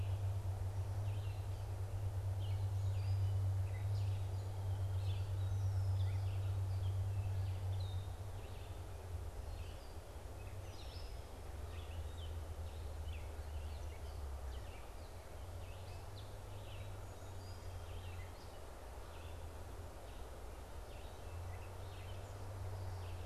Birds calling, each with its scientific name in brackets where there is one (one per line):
Red-winged Blackbird (Agelaius phoeniceus)
Song Sparrow (Melospiza melodia)
Gray Catbird (Dumetella carolinensis)
Red-eyed Vireo (Vireo olivaceus)